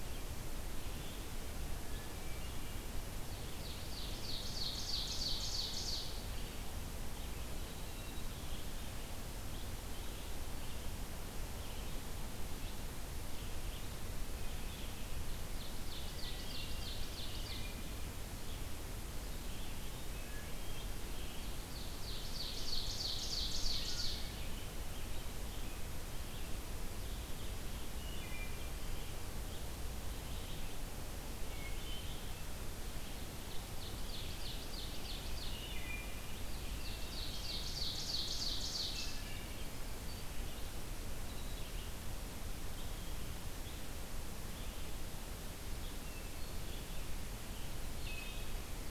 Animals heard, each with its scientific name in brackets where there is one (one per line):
Ovenbird (Seiurus aurocapilla)
Red-eyed Vireo (Vireo olivaceus)
Wood Thrush (Hylocichla mustelina)